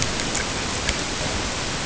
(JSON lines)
{"label": "ambient", "recorder": "HydroMoth"}